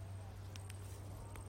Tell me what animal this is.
Tettigonia viridissima, an orthopteran